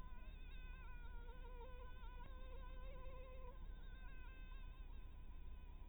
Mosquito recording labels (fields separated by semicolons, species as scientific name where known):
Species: Anopheles harrisoni; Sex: female; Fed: blood-fed; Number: one; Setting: cup